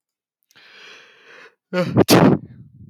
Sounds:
Sneeze